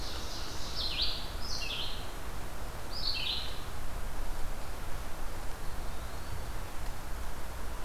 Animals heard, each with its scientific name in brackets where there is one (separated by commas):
American Crow (Corvus brachyrhynchos), Red-eyed Vireo (Vireo olivaceus), Ovenbird (Seiurus aurocapilla), Eastern Wood-Pewee (Contopus virens)